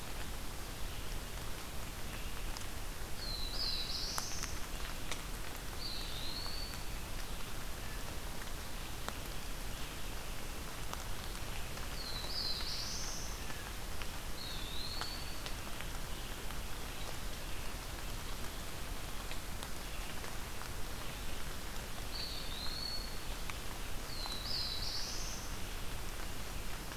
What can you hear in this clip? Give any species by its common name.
Red-eyed Vireo, Black-throated Blue Warbler, Eastern Wood-Pewee